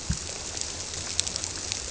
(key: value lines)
label: biophony
recorder: SoundTrap 300